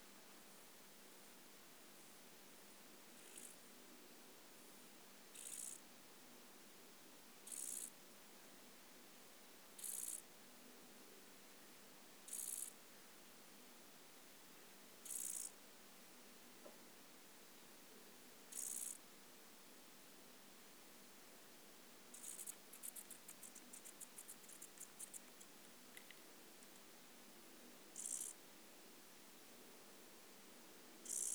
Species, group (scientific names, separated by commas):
Chorthippus brunneus, Orthoptera